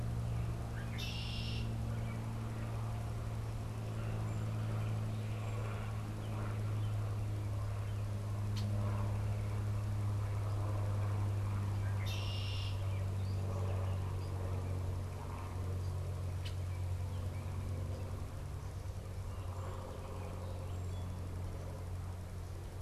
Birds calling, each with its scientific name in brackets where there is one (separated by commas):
Song Sparrow (Melospiza melodia), Red-winged Blackbird (Agelaius phoeniceus)